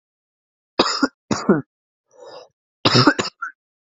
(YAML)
expert_labels:
- quality: ok
  cough_type: dry
  dyspnea: false
  wheezing: false
  stridor: false
  choking: false
  congestion: false
  nothing: true
  diagnosis: healthy cough
  severity: pseudocough/healthy cough
age: 21
gender: male
respiratory_condition: false
fever_muscle_pain: true
status: symptomatic